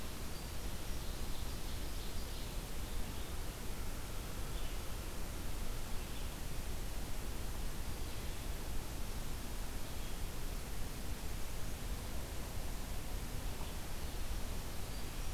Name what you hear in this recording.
Ovenbird